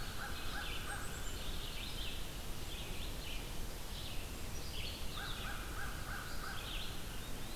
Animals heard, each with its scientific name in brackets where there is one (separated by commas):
American Crow (Corvus brachyrhynchos), Cedar Waxwing (Bombycilla cedrorum), Eastern Wood-Pewee (Contopus virens), Black-throated Green Warbler (Setophaga virens), Red-eyed Vireo (Vireo olivaceus)